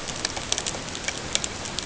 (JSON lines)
{"label": "ambient", "recorder": "HydroMoth"}